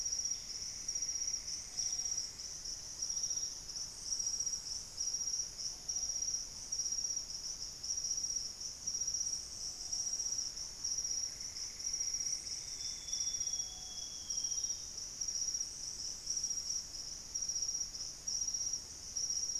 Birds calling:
Plumbeous Antbird (Myrmelastes hyperythrus), Thrush-like Wren (Campylorhynchus turdinus), Amazonian Grosbeak (Cyanoloxia rothschildii), unidentified bird

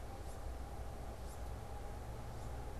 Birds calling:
Wood Duck (Aix sponsa)

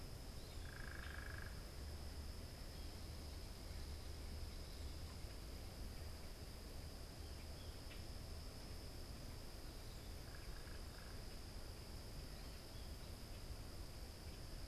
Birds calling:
Common Grackle (Quiscalus quiscula), unidentified bird

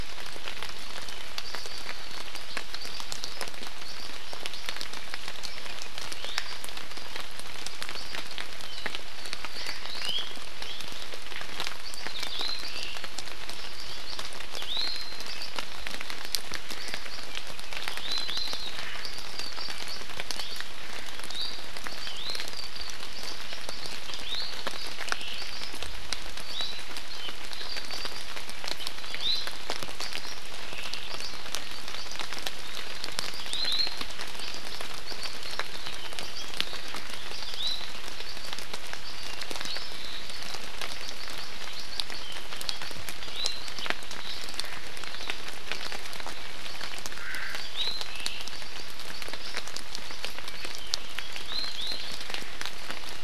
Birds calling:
Iiwi (Drepanis coccinea), Omao (Myadestes obscurus)

